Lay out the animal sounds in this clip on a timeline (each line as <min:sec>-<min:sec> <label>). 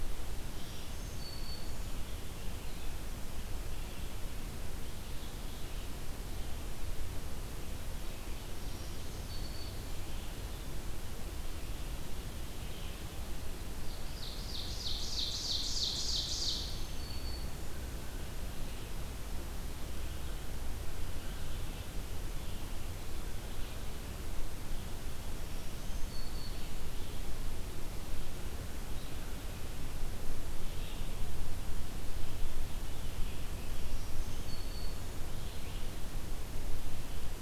0:00.6-0:02.1 Black-throated Green Warbler (Setophaga virens)
0:08.4-0:10.4 Black-throated Green Warbler (Setophaga virens)
0:13.7-0:16.9 Ovenbird (Seiurus aurocapilla)
0:16.7-0:18.0 Black-throated Green Warbler (Setophaga virens)
0:25.4-0:26.9 Black-throated Green Warbler (Setophaga virens)
0:33.7-0:35.5 Black-throated Green Warbler (Setophaga virens)